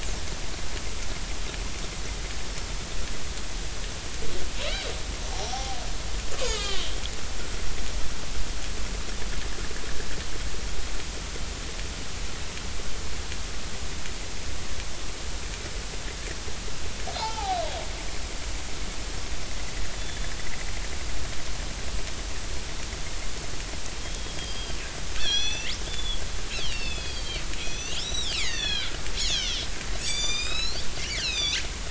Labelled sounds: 4.6	5.8	killer whale, northern resident, 0.80 to 5.7 kHz
6.4	6.9	killer whale, northern resident, 0.83 to 5.1 kHz
17.2	17.6	killer whale, northern resident, 0.80 to 1.4 kHz
24.0	24.8	killer whale, northern resident, 3.0 to 5.0 kHz
25.2	26.2	killer whale, northern resident, 1.4 to 6.0 kHz
26.6	29.6	killer whale, northern resident, 1.3 to 7.4 kHz
30.0	30.8	killer whale, northern resident, 1.2 to 8.0 kHz
31.1	31.6	killer whale, northern resident, 2.2 to 6.8 kHz

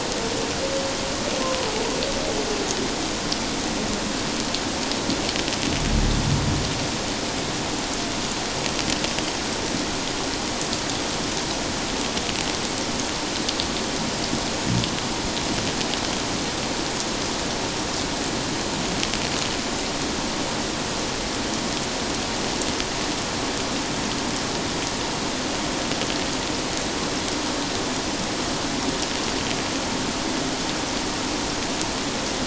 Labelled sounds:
1.4	1.7	humpback whale, 0.97 to 1.1 kHz

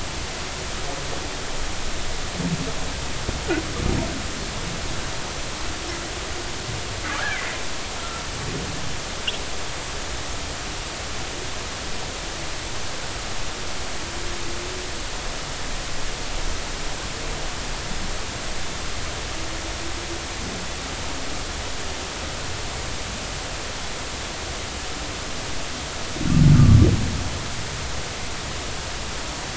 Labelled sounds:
7.3	7.6	humpback whale, 1.9 to 2.4 kHz

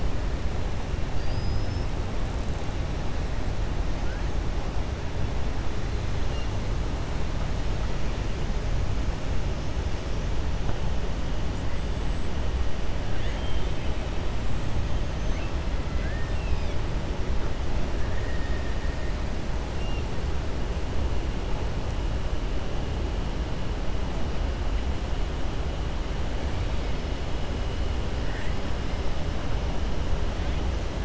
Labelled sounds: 1.1	1.9	killer whale, 4.6 to 5.4 kHz
13.1	13.9	killer whale, 1.6 to 4.0 kHz
15.9	16.8	killer whale, 1.4 to 5.7 kHz

